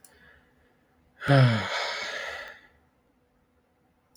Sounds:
Sigh